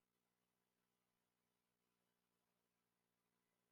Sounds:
Cough